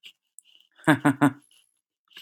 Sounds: Laughter